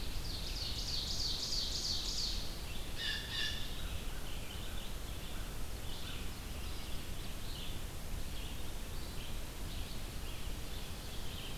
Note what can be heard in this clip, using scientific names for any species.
Seiurus aurocapilla, Vireo olivaceus, Cyanocitta cristata, Corvus brachyrhynchos